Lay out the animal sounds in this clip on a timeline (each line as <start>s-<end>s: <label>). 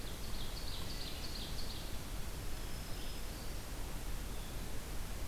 0.3s-2.0s: Ovenbird (Seiurus aurocapilla)
2.3s-3.6s: Black-throated Green Warbler (Setophaga virens)